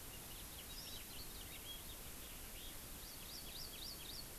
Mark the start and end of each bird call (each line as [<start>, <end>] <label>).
[0.00, 2.80] House Finch (Haemorhous mexicanus)
[0.70, 1.00] Hawaii Amakihi (Chlorodrepanis virens)
[2.90, 4.30] Hawaii Amakihi (Chlorodrepanis virens)